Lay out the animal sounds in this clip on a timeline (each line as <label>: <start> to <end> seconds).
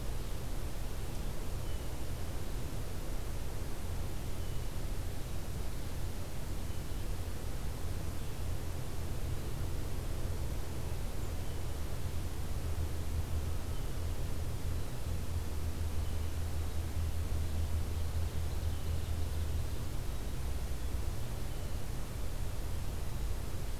Blue Jay (Cyanocitta cristata): 1.5 to 2.1 seconds
Blue Jay (Cyanocitta cristata): 4.3 to 4.9 seconds
Ovenbird (Seiurus aurocapilla): 18.0 to 20.1 seconds